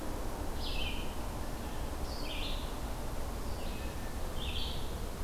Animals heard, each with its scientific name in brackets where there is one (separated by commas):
Blue Jay (Cyanocitta cristata), Red-eyed Vireo (Vireo olivaceus)